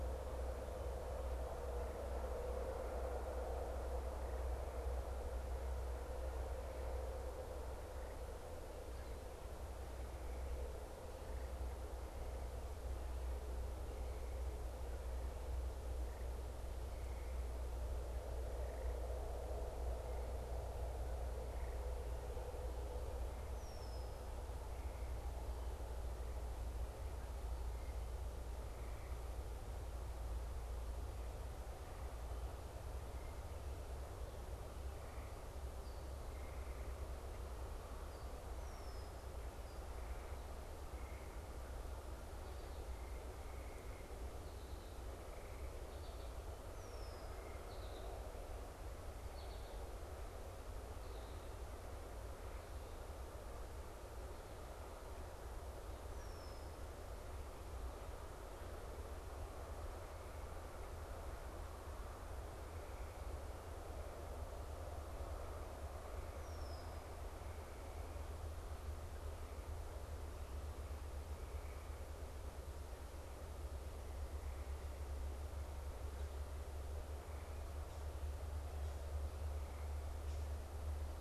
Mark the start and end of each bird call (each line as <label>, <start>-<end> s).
Red-winged Blackbird (Agelaius phoeniceus), 23.4-24.4 s
Red-winged Blackbird (Agelaius phoeniceus), 38.4-39.2 s
American Goldfinch (Spinus tristis), 45.4-51.6 s
Red-winged Blackbird (Agelaius phoeniceus), 46.6-47.4 s
Red-winged Blackbird (Agelaius phoeniceus), 56.0-56.8 s
Red-winged Blackbird (Agelaius phoeniceus), 66.3-67.0 s